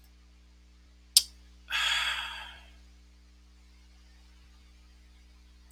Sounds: Sigh